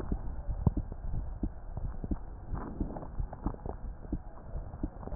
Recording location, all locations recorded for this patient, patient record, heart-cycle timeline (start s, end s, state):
aortic valve (AV)
aortic valve (AV)+aortic valve (AV)+pulmonary valve (PV)+tricuspid valve (TV)+mitral valve (MV)
#Age: Child
#Sex: Female
#Height: 137.0 cm
#Weight: 32.1 kg
#Pregnancy status: False
#Murmur: Absent
#Murmur locations: nan
#Most audible location: nan
#Systolic murmur timing: nan
#Systolic murmur shape: nan
#Systolic murmur grading: nan
#Systolic murmur pitch: nan
#Systolic murmur quality: nan
#Diastolic murmur timing: nan
#Diastolic murmur shape: nan
#Diastolic murmur grading: nan
#Diastolic murmur pitch: nan
#Diastolic murmur quality: nan
#Outcome: Abnormal
#Campaign: 2014 screening campaign
0.00	0.10	systole
0.10	0.18	S2
0.18	0.48	diastole
0.48	0.58	S1
0.58	0.66	systole
0.66	0.72	S2
0.72	1.10	diastole
1.10	1.26	S1
1.26	1.42	systole
1.42	1.52	S2
1.52	1.80	diastole
1.80	1.94	S1
1.94	2.08	systole
2.08	2.18	S2
2.18	2.52	diastole
2.52	2.62	S1
2.62	2.78	systole
2.78	2.88	S2
2.88	3.18	diastole
3.18	3.28	S1
3.28	3.44	systole
3.44	3.54	S2
3.54	3.84	diastole
3.84	3.94	S1
3.94	4.10	systole
4.10	4.20	S2
4.20	4.54	diastole
4.54	4.64	S1
4.64	4.82	systole
4.82	4.90	S2
4.90	5.14	diastole
5.14	5.15	S1